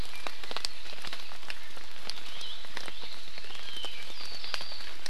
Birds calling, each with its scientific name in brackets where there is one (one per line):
Apapane (Himatione sanguinea)